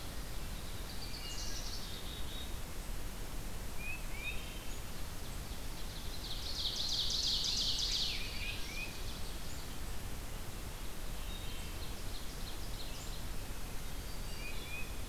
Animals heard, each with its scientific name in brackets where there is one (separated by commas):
Black-capped Chickadee (Poecile atricapillus), Tufted Titmouse (Baeolophus bicolor), Wood Thrush (Hylocichla mustelina), Ovenbird (Seiurus aurocapilla)